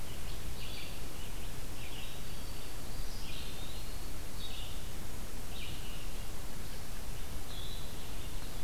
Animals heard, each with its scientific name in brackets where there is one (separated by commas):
Black-throated Green Warbler (Setophaga virens), Eastern Wood-Pewee (Contopus virens), Red-eyed Vireo (Vireo olivaceus)